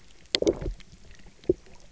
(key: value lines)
label: biophony, low growl
recorder: SoundTrap 300